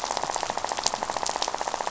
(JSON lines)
{"label": "biophony, rattle", "recorder": "SoundTrap 500"}